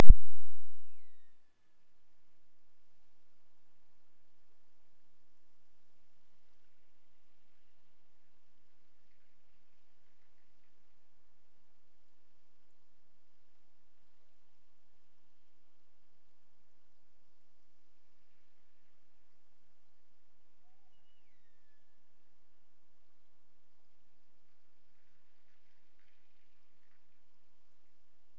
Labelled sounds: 0.6	2.1	killer whale, Bigg's (transient), Gulf of Alaska transient, 1.6 to 4.4 kHz
20.9	22.4	killer whale, Bigg's (transient), Gulf of Alaska transient, 1.7 to 6.4 kHz

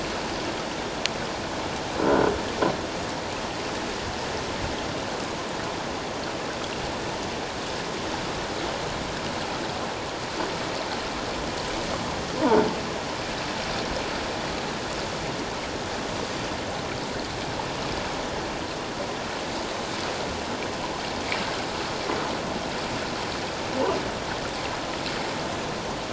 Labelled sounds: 2.0	2.3	croaking sound likely from a nearby submerged object, 1.3 to 1.6 kHz

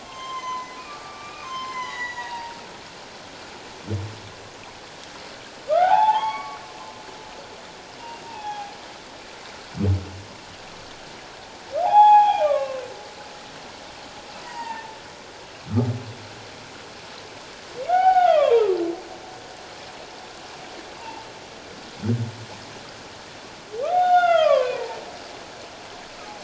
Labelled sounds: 0.0	2.6	humpback whale, 0.88 to 7.0 kHz
5.7	6.6	humpback whale, 0.78 to 4.5 kHz
7.9	8.7	humpback whale, 0.78 to 3.5 kHz
11.8	12.8	humpback whale, 0.78 to 3.5 kHz
14.4	15.0	humpback whale, 0.84 to 2.9 kHz
17.9	18.7	humpback whale, 0.78 to 3.1 kHz
21.0	21.3	humpback whale, 0.78 to 0.97 kHz
23.9	25.0	humpback whale, 0.78 to 3.7 kHz

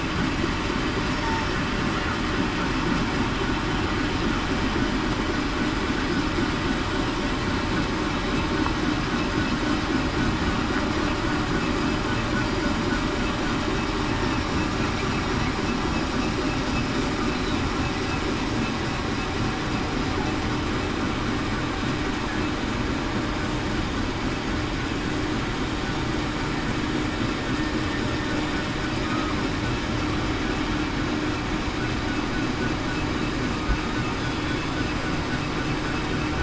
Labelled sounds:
34.4	34.8	killer whale, southern resident, 3.4 to 3.5 kHz

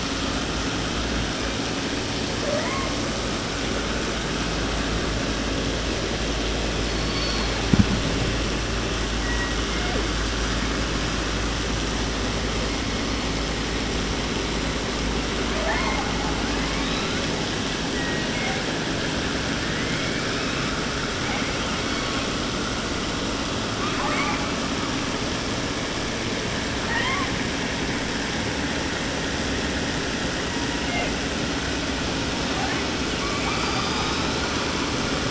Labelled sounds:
2.4	3.0	killer whale, 0.44 to 3.5 kHz
6.8	7.7	killer whale, southern resident, 0.30 to 4.8 kHz
9.1	10.2	killer whale, 0.16 to 2.8 kHz
12.6	13.2	killer whale, 1.5 to 2.7 kHz
15.5	16.2	killer whale, 0.37 to 4.7 kHz
16.5	17.3	killer whale, 0.37 to 5.3 kHz
17.9	18.7	killer whale, southern resident, J pod, call S01, 0.30 to 3.0 kHz
19.5	20.8	killer whale, 0.30 to 5.7 kHz
21.2	22.4	killer whale, 0.73 to 4.9 kHz
23.7	24.5	killer whale, 0.30 to 7.8 kHz
26.9	27.4	killer whale, 0.30 to 3.5 kHz
30.4	31.1	killer whale, 0.38 to 3.6 kHz
32.5	34.8	killer whale, 0.30 to 6.2 kHz

